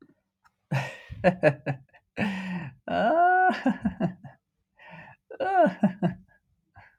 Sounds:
Laughter